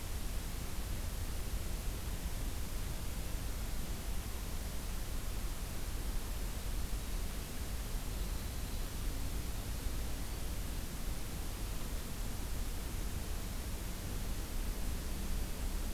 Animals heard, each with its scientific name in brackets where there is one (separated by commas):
Winter Wren (Troglodytes hiemalis)